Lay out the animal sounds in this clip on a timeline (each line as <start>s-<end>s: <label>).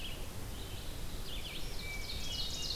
0.0s-2.8s: Red-eyed Vireo (Vireo olivaceus)
1.7s-2.8s: Hermit Thrush (Catharus guttatus)
1.8s-2.8s: Ovenbird (Seiurus aurocapilla)